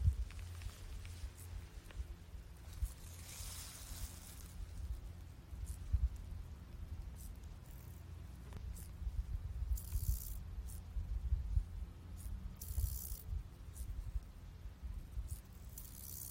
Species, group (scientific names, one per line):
Chorthippus albomarginatus
Orthoptera